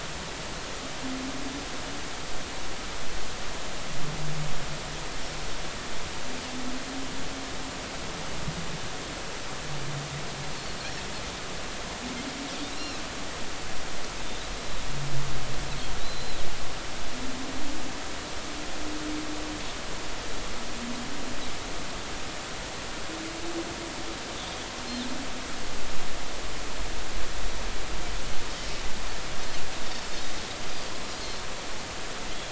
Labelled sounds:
12.7	13.0	Pacific white-sided dolphin, 2.7 to 5.6 kHz
16.0	16.4	Pacific white-sided dolphin, 3.7 to 4.1 kHz

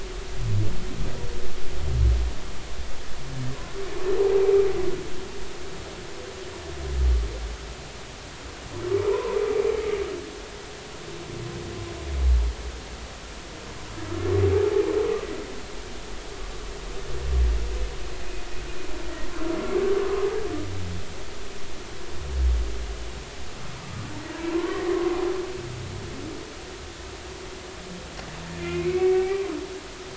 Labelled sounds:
9.1	9.4	humpback whale, 0.90 to 1.1 kHz
24.3	25.1	humpback whale, 0.86 to 1.2 kHz
28.6	29.5	humpback whale, 0.80 to 2.5 kHz

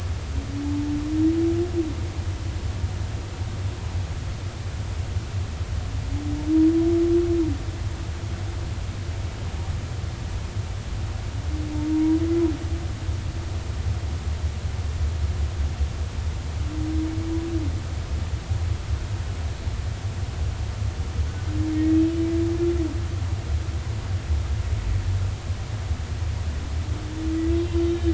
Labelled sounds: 11.9	12.2	humpback whale, 0.90 to 0.99 kHz
21.7	22.0	humpback whale, 1.8 to 2.2 kHz
27.6	28.1	humpback whale, 3.0 to 3.8 kHz

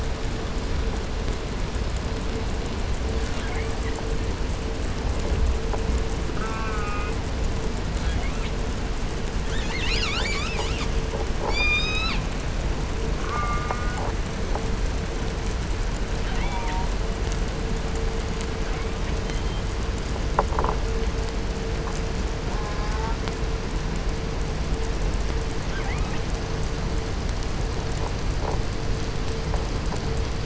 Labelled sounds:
2.9	4.3	killer whale, southern resident, 0.76 to 5.1 kHz
6.3	7.2	killer whale, southern resident, J pod, call S04, 0.65 to 3.9 kHz
7.7	8.7	killer whale, southern resident, 0.44 to 5.1 kHz
9.3	11.1	killer whale, southern resident, call S10, 0.38 to 8.0 kHz
11.4	12.3	killer whale, southern resident, 0.61 to 8.0 kHz
13.1	14.2	killer whale, southern resident, J pod, call S04, 0.78 to 2.5 kHz
16.2	17.0	killer whale, southern resident, J pod, call S04, 0.48 to 4.7 kHz
18.2	19.7	killer whale, 0.59 to 8.0 kHz
22.5	23.3	killer whale, southern resident, J pod, call S04, 0.55 to 1.9 kHz
25.5	26.5	killer whale, southern resident, 0.42 to 4.7 kHz

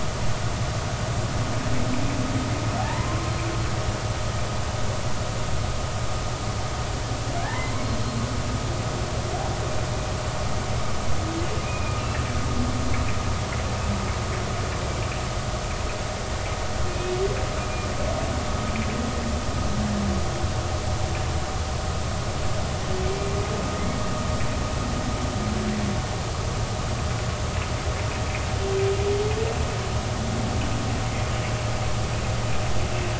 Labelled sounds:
2.8	3.2	humpback whale, 0.80 to 1.2 kHz
11.6	12.2	humpback whale, 2.3 to 2.8 kHz
16.9	17.1	humpback whale, 2.4 to 2.6 kHz
23.1	23.4	humpback whale, 2.3 to 2.4 kHz

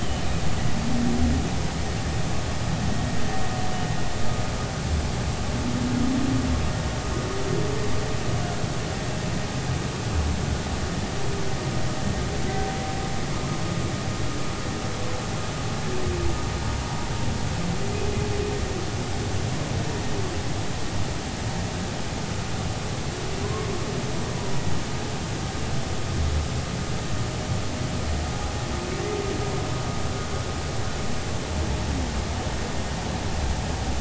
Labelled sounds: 23.4	23.7	humpback whale, 0.96 to 1.2 kHz

